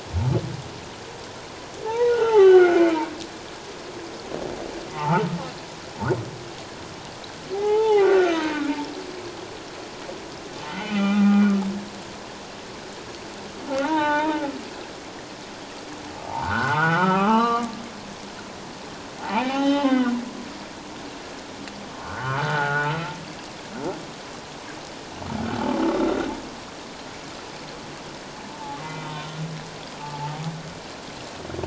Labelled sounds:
1.8	3.0	humpback whale, 0.78 to 3.1 kHz
4.9	5.3	humpback whale, 0.78 to 1.6 kHz
7.5	8.7	humpback whale, 0.78 to 6.4 kHz
10.6	11.6	humpback whale, 0.78 to 3.1 kHz
13.7	14.6	humpback whale, 0.81 to 3.8 kHz
16.3	17.7	humpback whale, 0.78 to 4.1 kHz
19.2	20.1	humpback whale, 0.78 to 4.0 kHz
22.0	23.0	humpback whale, 0.81 to 1.6 kHz
28.8	29.4	humpback whale, 0.88 to 3.8 kHz
30.0	30.4	humpback whale, 0.81 to 0.94 kHz

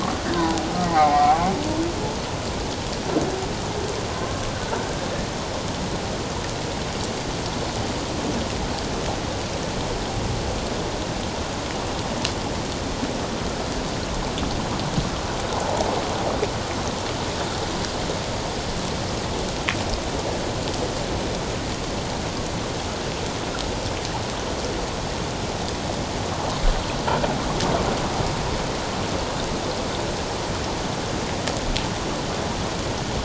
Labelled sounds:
0.9	1.5	humpback whale, 0.78 to 0.91 kHz
4.1	4.3	humpback whale, 1.0 to 1.1 kHz

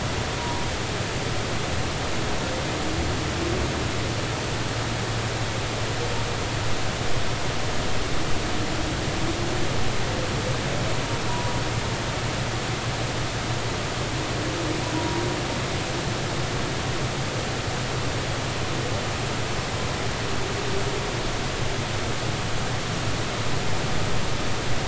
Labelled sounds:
0.4	0.6	humpback whale, 0.90 to 1.1 kHz
11.3	11.5	humpback whale, 0.93 to 1.0 kHz
14.9	15.2	humpback whale, 0.93 to 1.0 kHz

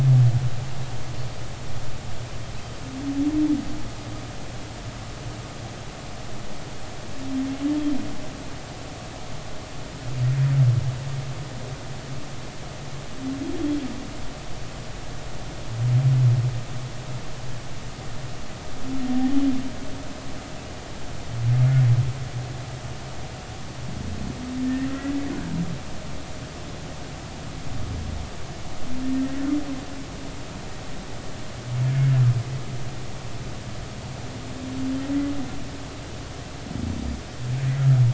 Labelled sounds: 31.9	32.1	humpback whale, 2.1 to 2.2 kHz

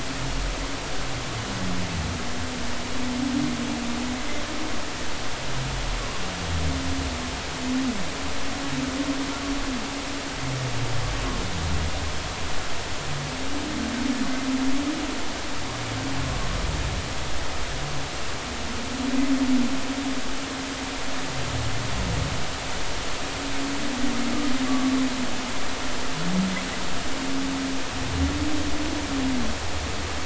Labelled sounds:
24.7	24.9	humpback whale, 1.1 to 1.2 kHz

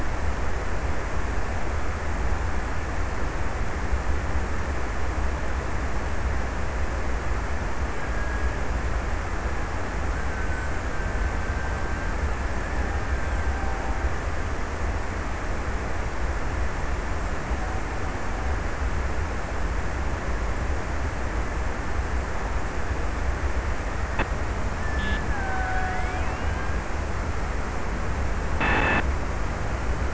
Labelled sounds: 9.6	15.0	killer whale, Bigg's (transient), 1.2 to 2.0 kHz
24.5	27.2	killer whale, Bigg's (transient), 0.57 to 2.0 kHz

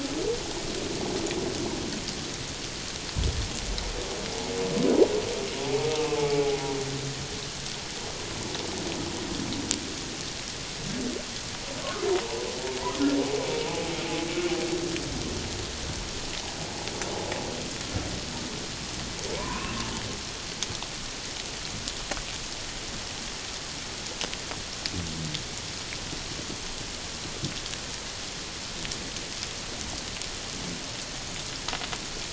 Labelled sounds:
5.7	6.6	humpback whale, 0.78 to 0.97 kHz
13.4	13.7	humpback whale, 2.2 to 2.4 kHz
19.4	19.8	humpback whale, 0.91 to 2.8 kHz

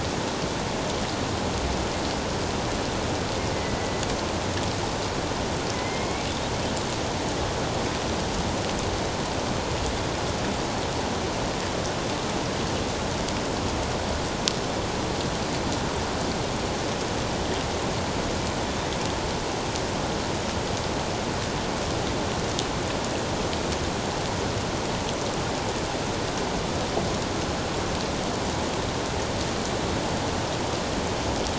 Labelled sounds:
3.8	4.0	killer whale, northern resident, A clan, AA subclan, A04 pod, 1.9 to 2.1 kHz
5.7	6.3	killer whale, northern resident, A clan, AA subclan, A04 pod, 2.0 to 2.4 kHz

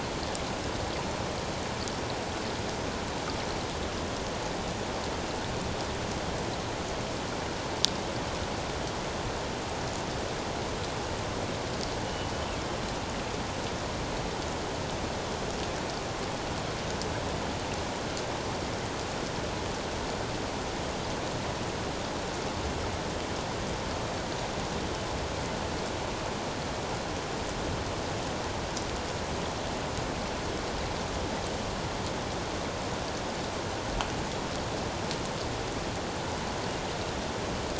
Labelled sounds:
12.0	12.3	killer whale, northern resident, G clan, 2.9 to 3.0 kHz

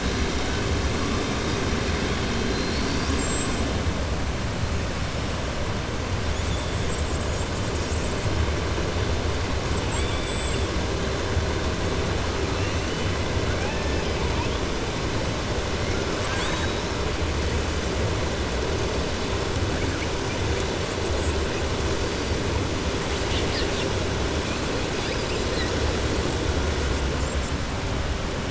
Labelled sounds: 9.8	10.6	killer whale, southern resident, 2.2 to 4.3 kHz
16.1	16.9	killer whale, southern resident, 0.99 to 8.0 kHz

